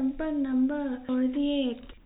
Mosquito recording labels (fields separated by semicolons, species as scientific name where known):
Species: no mosquito; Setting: cup